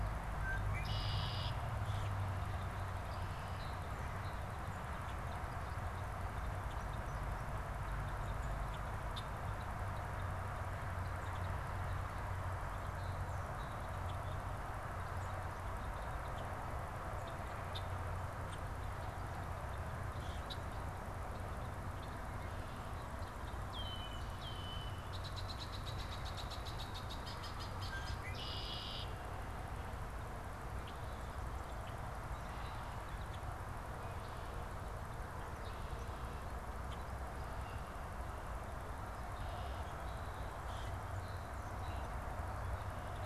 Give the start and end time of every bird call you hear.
0.2s-1.7s: Red-winged Blackbird (Agelaius phoeniceus)
1.7s-2.2s: Common Grackle (Quiscalus quiscula)
2.6s-23.0s: unidentified bird
23.5s-29.4s: Red-winged Blackbird (Agelaius phoeniceus)
30.6s-38.0s: unidentified bird
39.2s-40.6s: Red-winged Blackbird (Agelaius phoeniceus)
40.6s-41.1s: Common Grackle (Quiscalus quiscula)

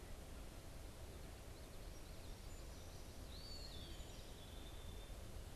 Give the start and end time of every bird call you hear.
3.1s-5.6s: Eastern Wood-Pewee (Contopus virens)

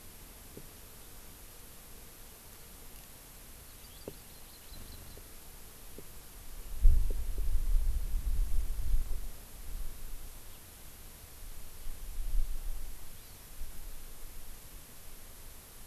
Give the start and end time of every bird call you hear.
3.7s-5.2s: Hawaii Amakihi (Chlorodrepanis virens)
13.2s-13.5s: Hawaii Amakihi (Chlorodrepanis virens)

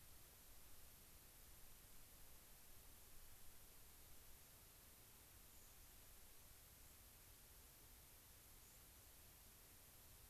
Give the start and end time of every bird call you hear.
5.4s-5.7s: White-crowned Sparrow (Zonotrichia leucophrys)
8.5s-8.8s: White-crowned Sparrow (Zonotrichia leucophrys)

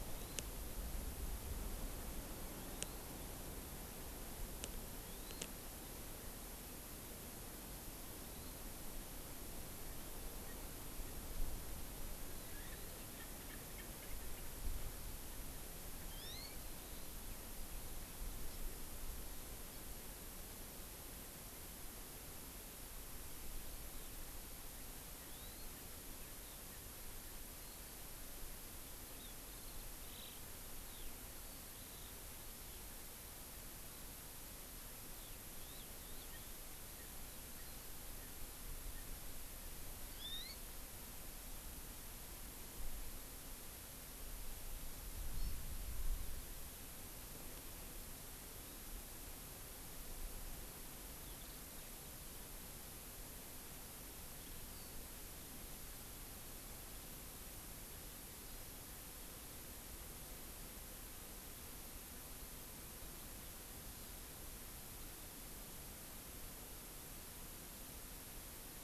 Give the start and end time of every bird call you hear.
0.0s-0.5s: Hawaii Amakihi (Chlorodrepanis virens)
2.5s-3.1s: Hawaii Amakihi (Chlorodrepanis virens)
4.9s-5.5s: Hawaii Amakihi (Chlorodrepanis virens)
8.1s-8.7s: Hawaii Amakihi (Chlorodrepanis virens)
10.4s-11.2s: Erckel's Francolin (Pternistis erckelii)
12.3s-14.5s: Erckel's Francolin (Pternistis erckelii)
16.0s-16.6s: Hawaii Amakihi (Chlorodrepanis virens)
25.1s-27.4s: Erckel's Francolin (Pternistis erckelii)
25.2s-25.7s: Hawaii Amakihi (Chlorodrepanis virens)
29.1s-32.9s: Eurasian Skylark (Alauda arvensis)
35.1s-36.6s: Eurasian Skylark (Alauda arvensis)
36.1s-39.1s: Erckel's Francolin (Pternistis erckelii)
40.0s-40.6s: Hawaii Amakihi (Chlorodrepanis virens)
45.3s-45.6s: Hawaii Amakihi (Chlorodrepanis virens)
51.2s-51.9s: Eurasian Skylark (Alauda arvensis)

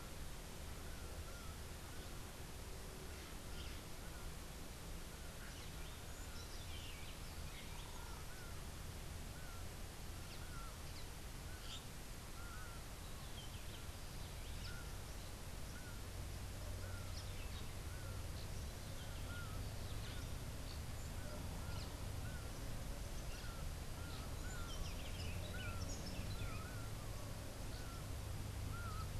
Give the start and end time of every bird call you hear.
5.7s-19.4s: Laughing Falcon (Herpetotheres cachinnans)
22.0s-29.2s: Laughing Falcon (Herpetotheres cachinnans)
23.9s-26.7s: Buff-throated Saltator (Saltator maximus)

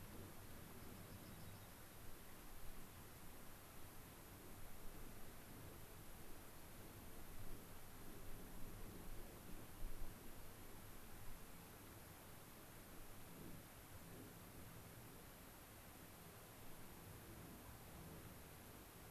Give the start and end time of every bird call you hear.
0.7s-2.0s: Dark-eyed Junco (Junco hyemalis)

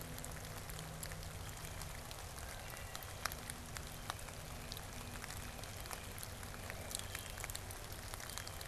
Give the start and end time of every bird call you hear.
2.4s-3.4s: Wood Thrush (Hylocichla mustelina)

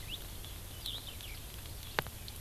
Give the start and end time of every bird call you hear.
0.8s-1.0s: Eurasian Skylark (Alauda arvensis)

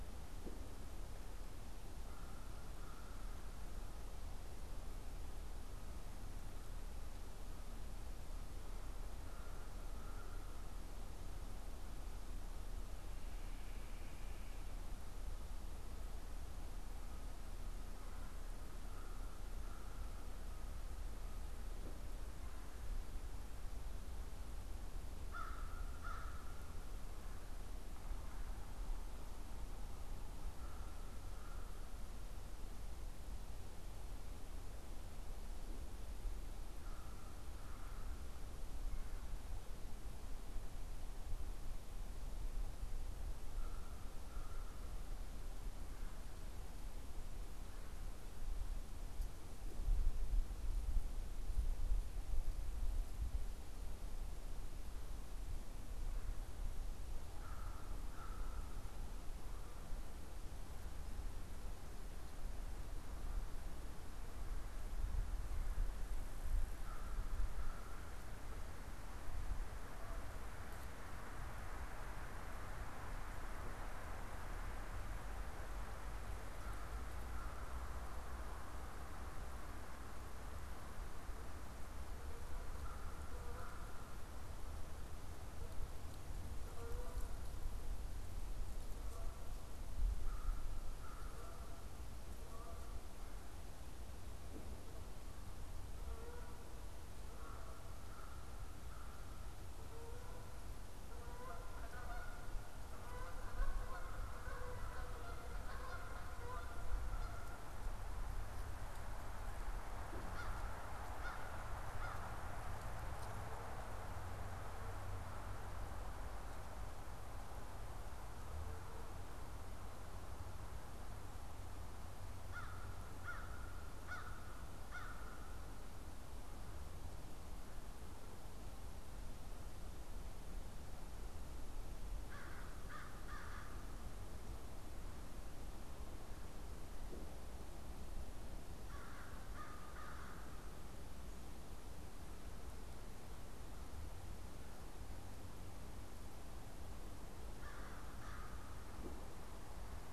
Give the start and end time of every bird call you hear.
1.8s-3.5s: American Crow (Corvus brachyrhynchos)
9.2s-10.8s: American Crow (Corvus brachyrhynchos)
17.9s-18.5s: Red-bellied Woodpecker (Melanerpes carolinus)
18.7s-20.9s: American Crow (Corvus brachyrhynchos)
25.1s-26.6s: American Crow (Corvus brachyrhynchos)
30.2s-32.0s: American Crow (Corvus brachyrhynchos)
36.7s-38.3s: American Crow (Corvus brachyrhynchos)
43.3s-45.1s: American Crow (Corvus brachyrhynchos)
57.3s-59.1s: American Crow (Corvus brachyrhynchos)
66.6s-68.2s: American Crow (Corvus brachyrhynchos)
76.5s-78.0s: American Crow (Corvus brachyrhynchos)
82.7s-84.3s: American Crow (Corvus brachyrhynchos)
85.4s-93.4s: Canada Goose (Branta canadensis)
90.2s-91.7s: American Crow (Corvus brachyrhynchos)
95.9s-107.8s: Canada Goose (Branta canadensis)
97.3s-99.6s: American Crow (Corvus brachyrhynchos)
110.2s-112.3s: American Crow (Corvus brachyrhynchos)
122.3s-125.6s: American Crow (Corvus brachyrhynchos)
132.1s-133.8s: American Crow (Corvus brachyrhynchos)
138.7s-140.6s: American Crow (Corvus brachyrhynchos)
147.4s-148.8s: American Crow (Corvus brachyrhynchos)

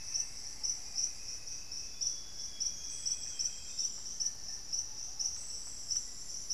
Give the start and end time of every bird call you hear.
0.0s-1.2s: Plumbeous Antbird (Myrmelastes hyperythrus)
0.0s-1.4s: Thrush-like Wren (Campylorhynchus turdinus)
0.0s-6.5s: Little Tinamou (Crypturellus soui)
0.0s-6.5s: Ruddy Pigeon (Patagioenas subvinacea)
1.7s-4.3s: Amazonian Grosbeak (Cyanoloxia rothschildii)
5.2s-6.5s: Black-faced Antthrush (Formicarius analis)

